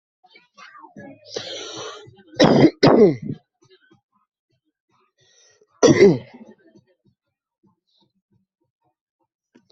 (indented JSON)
{
  "expert_labels": [
    {
      "quality": "ok",
      "cough_type": "dry",
      "dyspnea": false,
      "wheezing": false,
      "stridor": false,
      "choking": false,
      "congestion": false,
      "nothing": true,
      "diagnosis": "COVID-19",
      "severity": "mild"
    }
  ],
  "gender": "male",
  "respiratory_condition": true,
  "fever_muscle_pain": true,
  "status": "COVID-19"
}